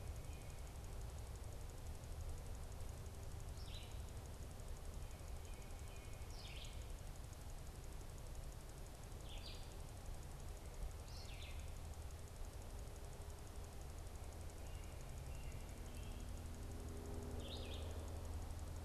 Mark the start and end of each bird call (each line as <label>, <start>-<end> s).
Red-eyed Vireo (Vireo olivaceus), 3.3-4.0 s
Red-eyed Vireo (Vireo olivaceus), 6.2-7.0 s
Red-eyed Vireo (Vireo olivaceus), 9.0-9.7 s
Red-eyed Vireo (Vireo olivaceus), 10.9-11.7 s
American Robin (Turdus migratorius), 14.1-16.3 s
Red-eyed Vireo (Vireo olivaceus), 17.2-17.9 s